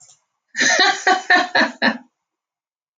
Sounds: Laughter